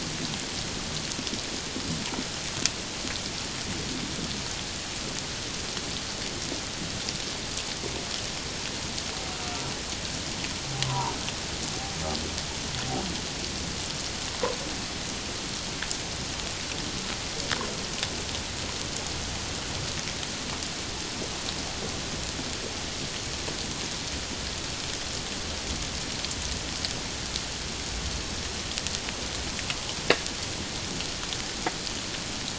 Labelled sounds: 10.8	11.1	humpback whale, 0.88 to 1.2 kHz

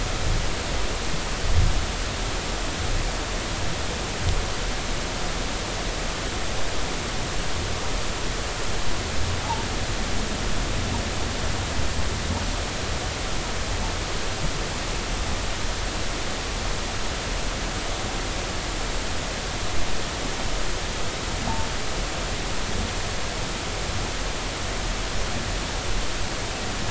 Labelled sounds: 9.4	9.7	humpback whale, 0.80 to 0.99 kHz

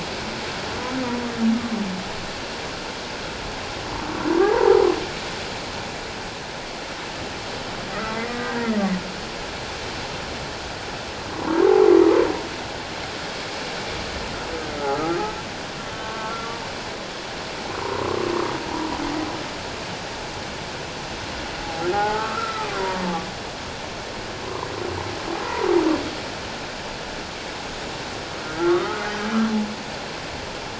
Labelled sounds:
4.4	4.8	humpback whale, 0.78 to 1.0 kHz
7.9	8.7	humpback whale, 1.2 to 2.1 kHz
11.6	11.9	humpback whale, 0.78 to 1.0 kHz
14.8	16.5	humpback whale, 1.1 to 3.2 kHz
17.8	18.2	humpback whale, 0.88 to 1.2 kHz
21.9	23.0	humpback whale, 0.78 to 1.6 kHz
28.7	29.1	humpback whale, 1.1 to 1.5 kHz

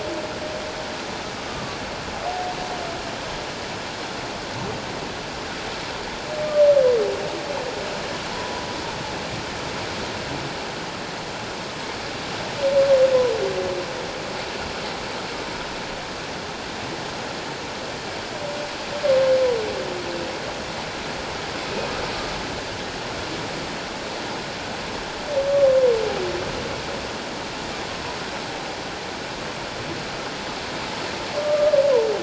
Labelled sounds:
1.5	1.8	humpback whale, 1.1 to 1.2 kHz

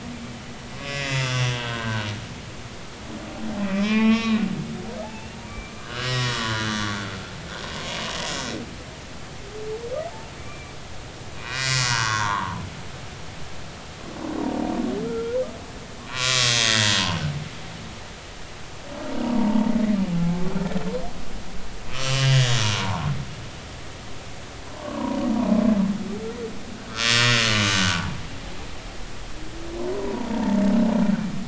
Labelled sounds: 0.7	2.1	humpback whale, 0.93 to 7.1 kHz
3.6	4.4	humpback whale, 0.83 to 5.8 kHz
5.0	7.0	humpback whale, 0.80 to 3.4 kHz
10.4	10.7	humpback whale, 2.2 to 2.4 kHz
11.4	12.6	humpback whale, 0.80 to 4.5 kHz
15.0	17.2	humpback whale, 0.93 to 7.1 kHz
19.2	19.7	humpback whale, 0.86 to 1.1 kHz
20.1	20.4	humpback whale, 0.80 to 0.90 kHz
21.9	23.1	humpback whale, 0.80 to 7.6 kHz
24.8	25.2	humpback whale, 0.90 to 1.2 kHz
27.0	28.2	humpback whale, 0.80 to 6.4 kHz
30.0	30.6	humpback whale, 0.86 to 1.0 kHz

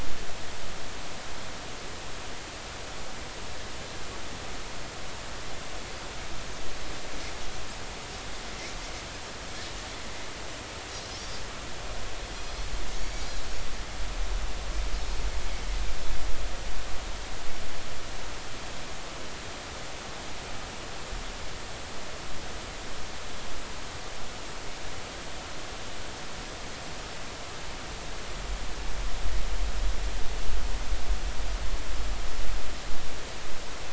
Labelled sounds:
12.3	13.2	Pacific white-sided dolphin, 5.6 to 5.9 kHz

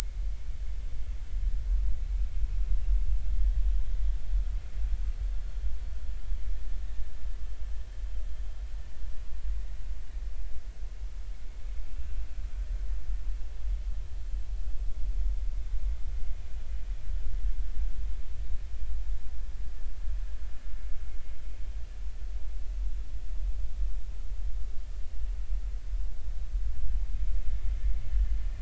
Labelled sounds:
11.9	12.1	vessel noise, 2.6 to 2.8 kHz

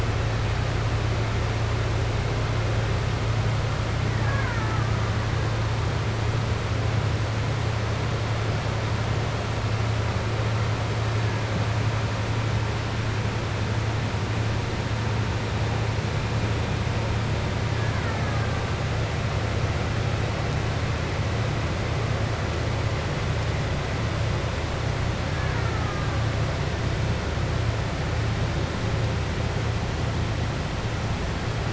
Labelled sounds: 4.1	4.9	killer whale, Bigg's (transient), 0.83 to 2.3 kHz
25.3	26.1	killer whale, Bigg's (transient), 0.86 to 2.3 kHz

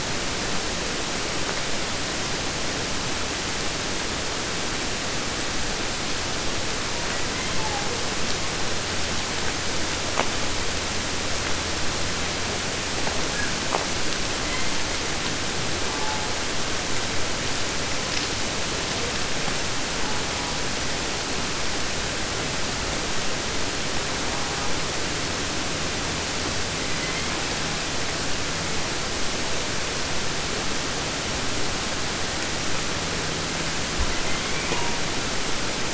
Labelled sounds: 6.9	8.1	killer whale, southern resident, J pod, call S01, 0.12 to 4.2 kHz
13.7	13.8	undetermined biological sound, fish thump, 0.14 to 1.7 kHz
14.4	15.0	killer whale, southern resident, 0.53 to 5.2 kHz
15.7	16.4	killer whale, southern resident, J pod, call S04, 0.10 to 2.2 kHz
20.0	20.8	killer whale, southern resident, J pod, call S04, 0.54 to 1.5 kHz
24.2	24.8	killer whale, southern resident, 0.54 to 1.7 kHz
26.6	27.8	killer whale, southern resident, J pod, call S01, 1.3 to 5.0 kHz
33.9	35.1	killer whale, southern resident, J pod, call S01, 0.53 to 4.4 kHz

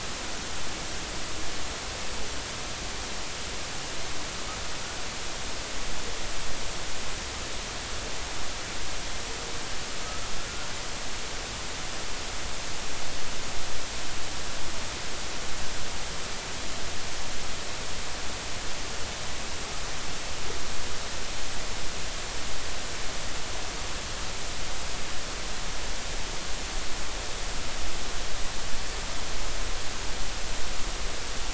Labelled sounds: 10.0	10.3	humpback whale, 1.2 to 1.4 kHz

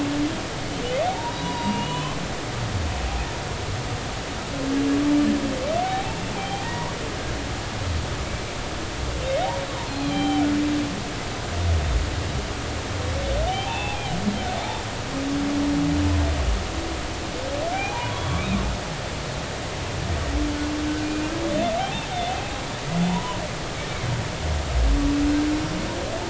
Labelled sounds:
1.1	2.2	humpback whale, 0.80 to 4.9 kHz
5.8	6.9	humpback whale, 0.80 to 3.2 kHz
8.3	8.5	humpback whale, 2.2 to 2.4 kHz
9.9	10.5	humpback whale, 0.80 to 4.3 kHz
13.5	14.0	humpback whale, 0.80 to 3.7 kHz
17.7	18.6	humpback whale, 0.80 to 2.6 kHz
21.0	22.1	humpback whale, 0.80 to 3.7 kHz
23.1	23.4	humpback whale, 0.83 to 1.1 kHz

